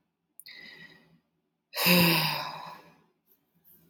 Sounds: Sigh